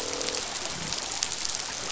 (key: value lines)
label: biophony, croak
recorder: SoundTrap 500